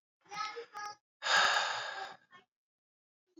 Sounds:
Sigh